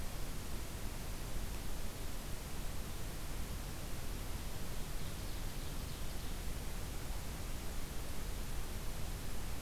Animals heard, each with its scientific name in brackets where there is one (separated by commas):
Ovenbird (Seiurus aurocapilla)